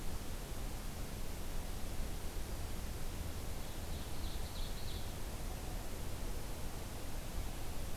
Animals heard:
Ovenbird (Seiurus aurocapilla)

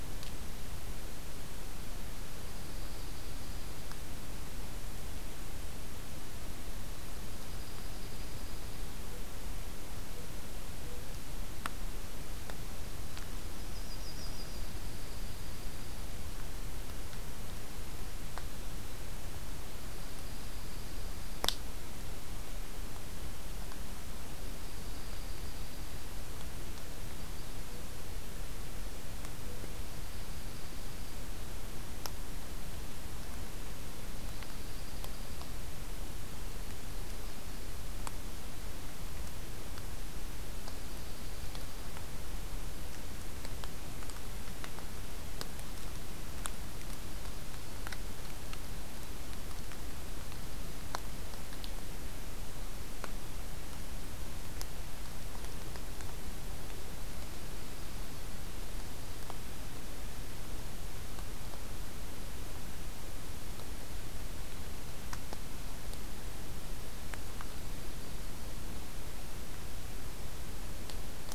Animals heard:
Yellow-rumped Warbler (Setophaga coronata), Dark-eyed Junco (Junco hyemalis)

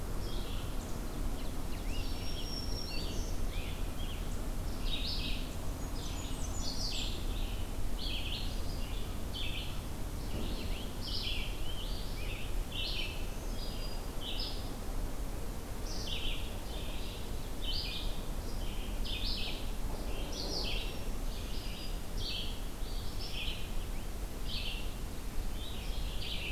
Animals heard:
Rose-breasted Grosbeak (Pheucticus ludovicianus), Ovenbird (Seiurus aurocapilla), Black-throated Green Warbler (Setophaga virens), Red-eyed Vireo (Vireo olivaceus), Blackburnian Warbler (Setophaga fusca)

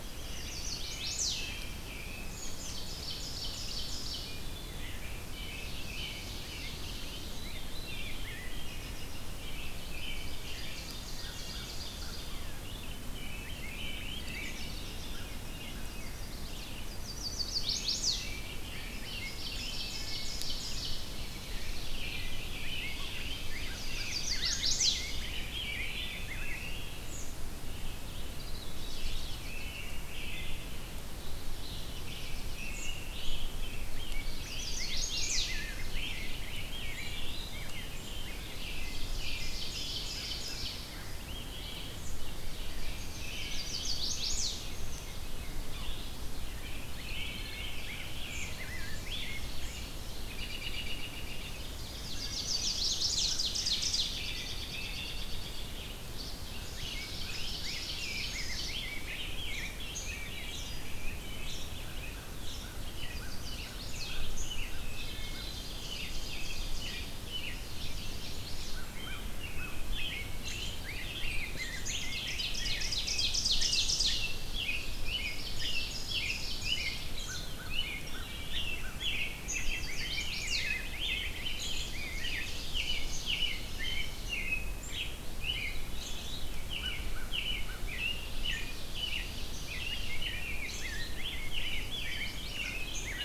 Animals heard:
American Crow (Corvus brachyrhynchos), Rose-breasted Grosbeak (Pheucticus ludovicianus), Veery (Catharus fuscescens), Chestnut-sided Warbler (Setophaga pensylvanica), Yellow-bellied Sapsucker (Sphyrapicus varius), Ovenbird (Seiurus aurocapilla), American Robin (Turdus migratorius), Red-eyed Vireo (Vireo olivaceus), Wood Thrush (Hylocichla mustelina)

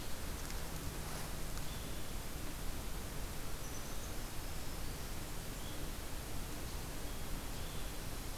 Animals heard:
Black-throated Green Warbler (Setophaga virens)

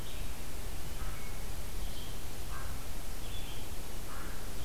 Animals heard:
Red-eyed Vireo (Vireo olivaceus), American Crow (Corvus brachyrhynchos)

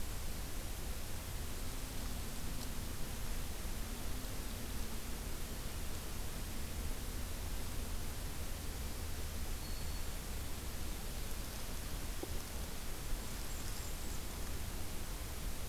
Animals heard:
Black-throated Green Warbler (Setophaga virens), Blackburnian Warbler (Setophaga fusca)

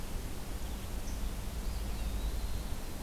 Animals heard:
Eastern Wood-Pewee (Contopus virens), Red-eyed Vireo (Vireo olivaceus)

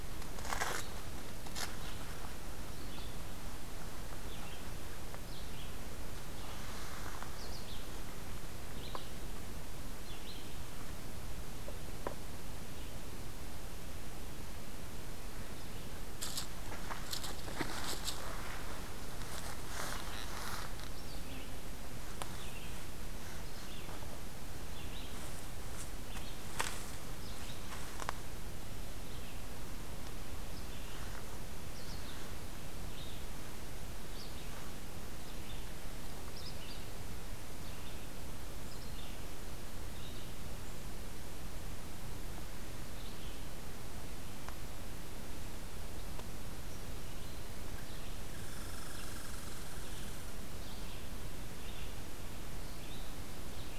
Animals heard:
Red-eyed Vireo (Vireo olivaceus), Red Squirrel (Tamiasciurus hudsonicus)

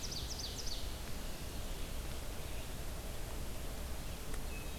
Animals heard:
Red-eyed Vireo (Vireo olivaceus), Ovenbird (Seiurus aurocapilla)

